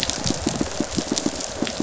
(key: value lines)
label: biophony, pulse
recorder: SoundTrap 500